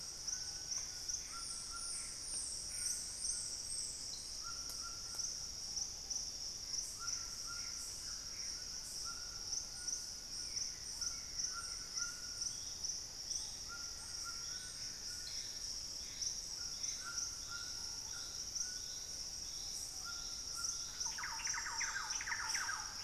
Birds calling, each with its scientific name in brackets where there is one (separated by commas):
Plumbeous Pigeon (Patagioenas plumbea), Buff-throated Woodcreeper (Xiphorhynchus guttatus), Screaming Piha (Lipaugus vociferans), Thrush-like Wren (Campylorhynchus turdinus), Gray Antbird (Cercomacra cinerascens), unidentified bird, White-throated Toucan (Ramphastos tucanus)